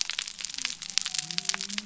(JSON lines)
{"label": "biophony", "recorder": "SoundTrap 300"}